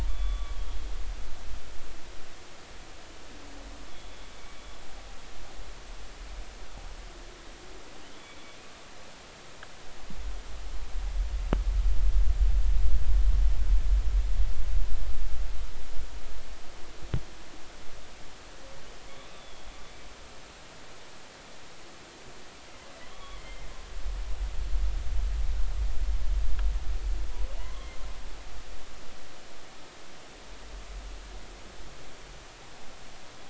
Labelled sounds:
0.1	0.6	humpback whale, 1.1 to 3.5 kHz
3.9	4.6	humpback whale, 2.2 to 3.5 kHz
19.3	19.7	humpback whale, 3.2 to 3.6 kHz
23.0	23.7	humpback whale, 0.96 to 3.5 kHz
27.6	27.9	humpback whale, 0.86 to 1.2 kHz

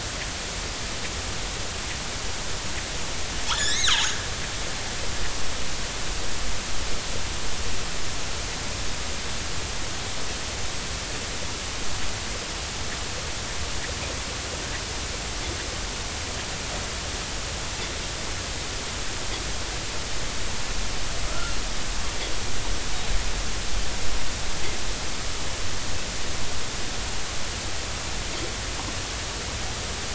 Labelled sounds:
3.5	4.1	killer whale, northern resident, 0.80 to 4.4 kHz
21.3	21.6	killer whale, northern resident, 1.2 to 1.5 kHz

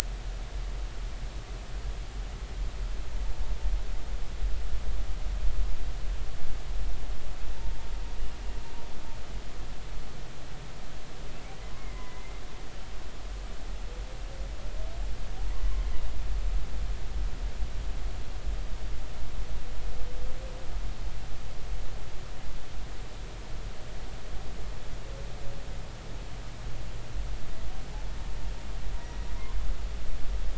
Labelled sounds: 11.7	12.4	humpback whale, 2.0 to 2.2 kHz
30.0	30.3	humpback whale, 1.9 to 2.0 kHz

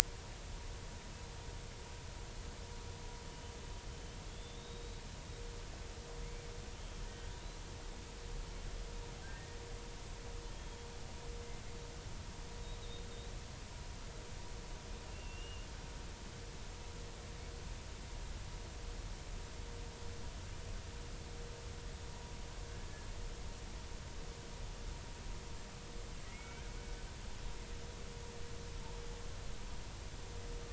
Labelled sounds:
4.3	5.0	killer whale, Bigg's (transient), 3.3 to 4.0 kHz
6.8	7.1	killer whale, Bigg's (transient), 3.1 to 3.3 kHz
9.2	9.6	killer whale, Bigg's (transient), 1.5 to 1.9 kHz
10.5	10.8	killer whale, Bigg's (transient), 3.2 to 3.3 kHz
15.0	15.7	killer whale, Bigg's (transient), 2.6 to 2.9 kHz
26.3	26.6	killer whale, Bigg's (transient), 2.1 to 2.4 kHz

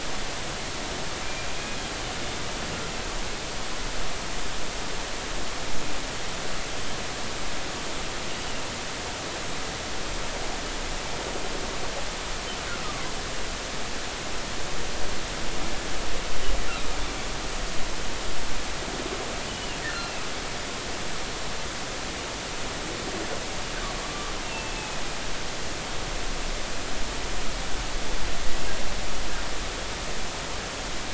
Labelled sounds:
19.9	20.2	humpback whale, 2.5 to 2.8 kHz
24.0	25.0	humpback whale, 1.1 to 2.8 kHz

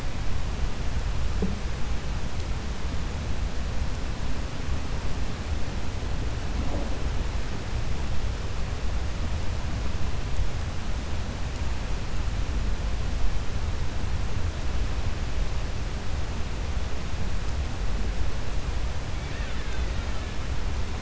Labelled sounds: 19.1	20.3	killer whale, Bigg's (transient), 1.3 to 4.1 kHz

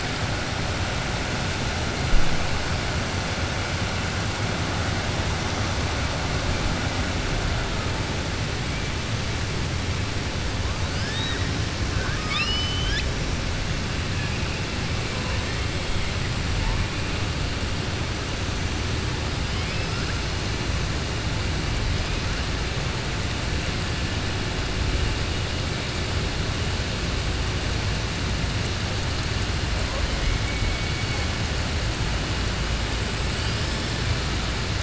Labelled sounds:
10.9	11.4	killer whale, southern resident, 0.92 to 5.5 kHz
11.9	13.1	killer whale, southern resident, 1.1 to 6.1 kHz

